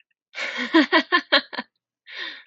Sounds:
Laughter